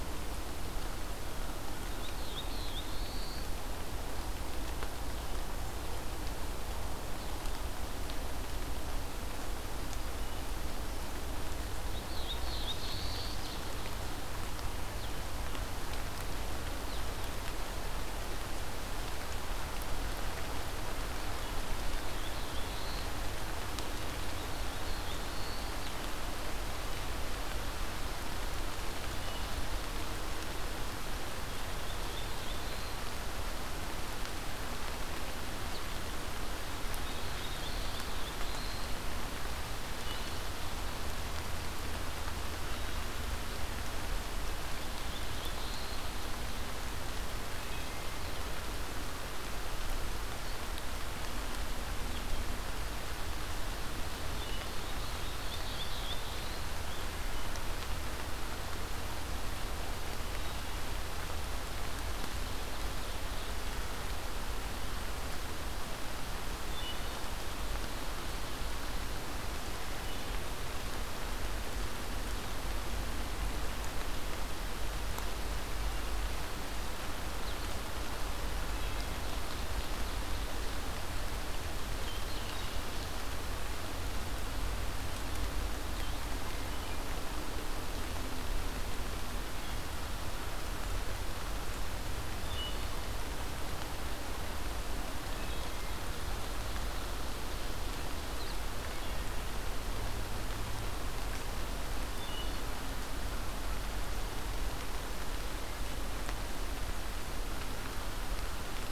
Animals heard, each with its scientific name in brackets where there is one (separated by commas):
Ovenbird (Seiurus aurocapilla), Black-throated Blue Warbler (Setophaga caerulescens), Wood Thrush (Hylocichla mustelina)